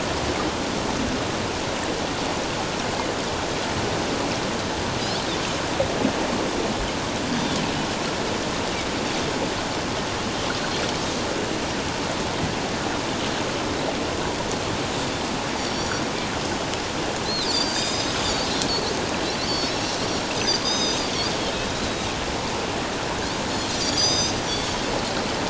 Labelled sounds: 10.5	10.8	Pacific white-sided dolphin, 4.1 to 4.3 kHz
15.6	16.0	Pacific white-sided dolphin, 4.4 to 6.9 kHz
17.2	18.1	Pacific white-sided dolphin, 3.6 to 7.5 kHz
19.4	19.9	Pacific white-sided dolphin, 4.2 to 5.8 kHz
20.3	21.1	Pacific white-sided dolphin, 3.5 to 6.6 kHz
23.5	24.4	Pacific white-sided dolphin, 3.6 to 7.5 kHz

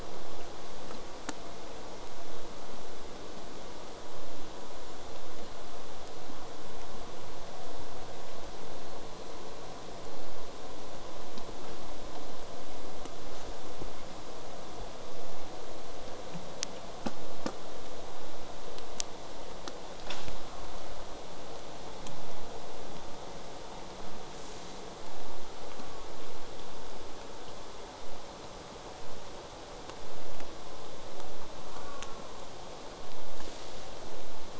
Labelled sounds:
0.0	5.0	vessel noise, 0 to 8.0 kHz
31.8	32.3	killer whale, southern resident, J pod, call S04, 0.42 to 1.5 kHz

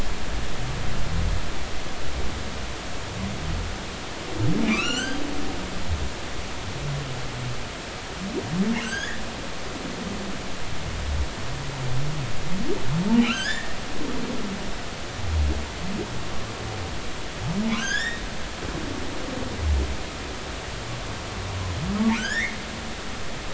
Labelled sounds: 4.6	5.2	humpback whale, 1.1 to 7.6 kHz
8.8	9.2	humpback whale, 1.4 to 6.7 kHz
13.2	13.8	humpback whale, 1.2 to 4.8 kHz
17.7	18.2	humpback whale, 1.4 to 5.2 kHz
22.2	22.6	humpback whale, 1.3 to 7.1 kHz

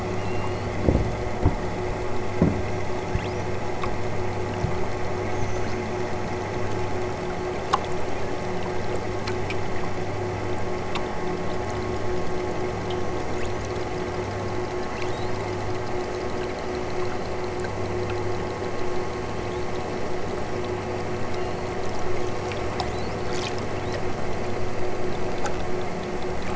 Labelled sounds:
0.2	0.8	killer whale, southern Alaska resident, 2.5 to 5.5 kHz
2.7	3.5	killer whale, southern Alaska resident, 2.6 to 8.0 kHz
12.8	13.7	killer whale, southern Alaska resident, 3.9 to 8.0 kHz
14.7	15.5	killer whale, southern Alaska resident, 3.2 to 8.0 kHz
19.4	19.9	killer whale, southern Alaska resident, 3.0 to 6.3 kHz
21.3	23.3	killer whale, southern Alaska resident, 2.5 to 8.0 kHz
23.7	24.1	killer whale, southern Alaska resident, 2.5 to 5.0 kHz

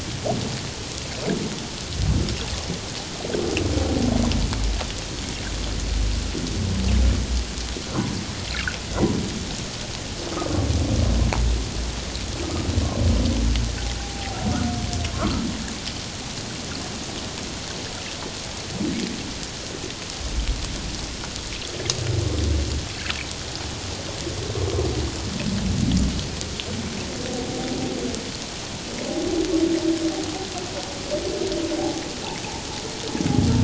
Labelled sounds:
14.0	14.4	humpback whale, 0.78 to 0.88 kHz
15.1	15.4	humpback whale, 1.0 to 1.5 kHz
31.8	32.0	humpback whale, 0.78 to 0.88 kHz

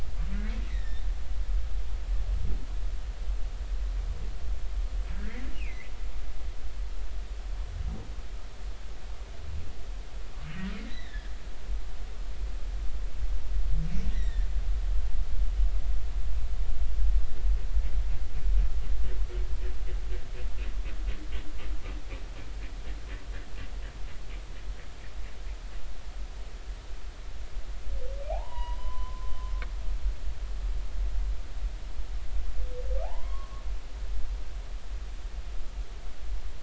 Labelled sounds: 0.3	1.0	humpback whale, 1.7 to 2.3 kHz
5.1	5.9	humpback whale, 1.6 to 2.9 kHz
10.9	11.3	humpback whale, 1.6 to 4.0 kHz
14.1	14.5	humpback whale, 1.7 to 4.1 kHz
28.3	29.3	humpback whale, 0.80 to 3.9 kHz
33.0	33.6	humpback whale, 0.80 to 1.2 kHz

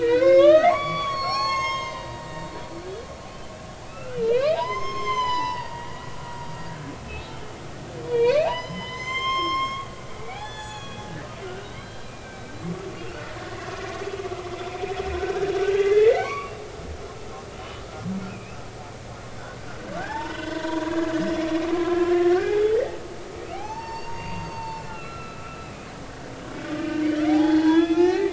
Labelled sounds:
0.0	3.0	humpback whale, 0.80 to 7.7 kHz
3.8	6.9	humpback whale, 0.80 to 7.5 kHz
8.0	12.5	humpback whale, 0.80 to 7.5 kHz
12.9	13.7	humpback whale, 1.7 to 2.9 kHz
15.1	16.5	humpback whale, 0.99 to 4.7 kHz
17.6	18.6	humpback whale, 2.3 to 3.1 kHz
19.4	21.1	humpback whale, 0.80 to 5.5 kHz
21.8	25.6	humpback whale, 0.80 to 6.5 kHz
26.7	28.3	humpback whale, 0.80 to 5.6 kHz

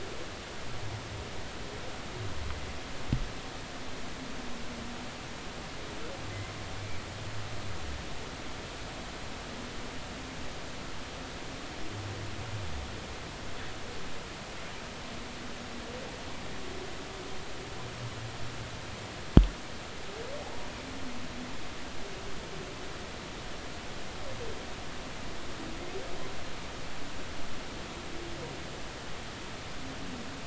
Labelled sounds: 20.4	20.7	humpback whale, 0.80 to 0.99 kHz

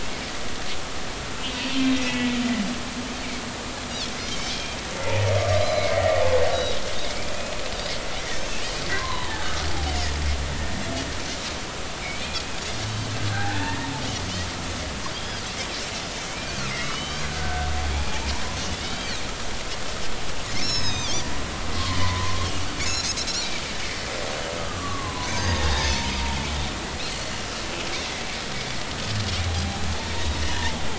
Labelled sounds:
2.1	2.4	humpback whale, 1.9 to 2.0 kHz
4.3	4.8	Pacific white-sided dolphin, 2.3 to 3.3 kHz
4.9	5.2	humpback whale, 0.80 to 0.96 kHz
5.5	6.8	Pacific white-sided dolphin, 3.7 to 5.1 kHz
5.9	6.2	humpback whale, 1.8 to 2.0 kHz
9.0	9.7	humpback whale, 0.80 to 1.4 kHz
12.0	13.1	Pacific white-sided dolphin, 2.1 to 4.7 kHz
13.3	13.9	humpback whale, 0.80 to 1.9 kHz
15.1	15.4	Pacific white-sided dolphin, 3.1 to 3.4 kHz
16.3	18.2	Pacific white-sided dolphin, 1.4 to 3.2 kHz
17.9	18.3	humpback whale, 0.80 to 0.96 kHz
18.7	19.2	Pacific white-sided dolphin, 2.1 to 4.9 kHz
20.5	21.3	Pacific white-sided dolphin, 2.3 to 6.8 kHz
21.7	22.4	humpback whale, 0.93 to 1.2 kHz
22.8	23.1	Pacific white-sided dolphin, 5.1 to 7.0 kHz
24.6	26.1	humpback whale, 0.83 to 1.3 kHz
25.3	25.6	Pacific white-sided dolphin, 4.7 to 6.5 kHz
27.1	27.3	Pacific white-sided dolphin, 4.3 to 4.4 kHz
30.6	30.8	humpback whale, 0.80 to 0.99 kHz

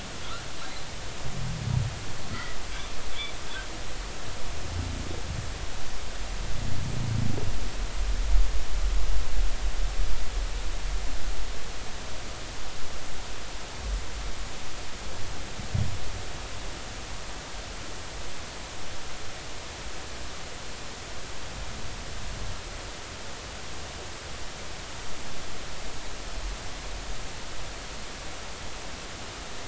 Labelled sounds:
2.3	2.6	humpback whale, 1.8 to 2.1 kHz

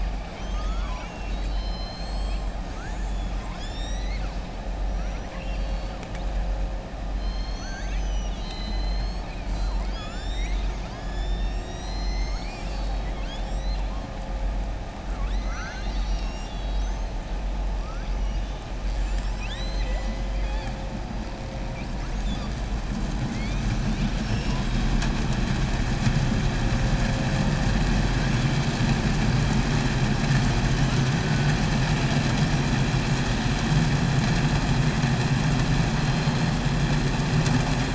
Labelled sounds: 4.9	6.0	killer whale, southern resident, 1.1 to 5.5 kHz
18.9	20.2	killer whale, southern resident, 0.66 to 7.8 kHz
24.1	24.6	killer whale, southern resident, 4.7 to 6.7 kHz

